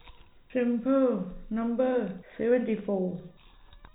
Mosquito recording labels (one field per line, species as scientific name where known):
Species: no mosquito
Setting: cup